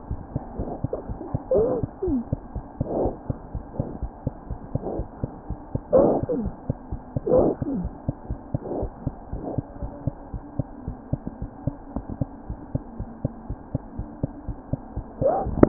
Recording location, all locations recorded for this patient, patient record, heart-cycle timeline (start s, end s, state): mitral valve (MV)
aortic valve (AV)+pulmonary valve (PV)+tricuspid valve (TV)+mitral valve (MV)
#Age: Child
#Sex: Male
#Height: 82.0 cm
#Weight: 9.59 kg
#Pregnancy status: False
#Murmur: Absent
#Murmur locations: nan
#Most audible location: nan
#Systolic murmur timing: nan
#Systolic murmur shape: nan
#Systolic murmur grading: nan
#Systolic murmur pitch: nan
#Systolic murmur quality: nan
#Diastolic murmur timing: nan
#Diastolic murmur shape: nan
#Diastolic murmur grading: nan
#Diastolic murmur pitch: nan
#Diastolic murmur quality: nan
#Outcome: Abnormal
#Campaign: 2015 screening campaign
0.00	9.79	unannotated
9.79	9.92	S1
9.92	10.04	systole
10.04	10.14	S2
10.14	10.31	diastole
10.31	10.42	S1
10.42	10.57	systole
10.57	10.68	S2
10.68	10.85	diastole
10.85	10.96	S1
10.96	11.09	systole
11.09	11.20	S2
11.20	11.39	diastole
11.39	11.52	S1
11.52	11.63	systole
11.63	11.74	S2
11.74	11.94	diastole
11.94	12.04	S1
12.04	12.19	systole
12.19	12.28	S2
12.28	12.47	diastole
12.47	12.58	S1
12.58	12.72	systole
12.72	12.82	S2
12.82	12.97	diastole
12.97	13.08	S1
13.08	13.22	systole
13.22	13.32	S2
13.32	13.48	diastole
13.48	13.58	S1
13.58	13.72	systole
13.72	13.82	S2
13.82	13.97	diastole
13.97	14.06	S1
14.06	14.21	systole
14.21	14.32	S2
14.32	14.46	diastole
14.46	14.56	S1
14.56	14.70	systole
14.70	14.78	S2
14.78	14.94	diastole
14.94	15.04	S1
15.04	15.68	unannotated